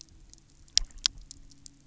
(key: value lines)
label: anthrophony, boat engine
recorder: SoundTrap 300